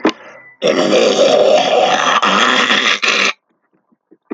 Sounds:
Throat clearing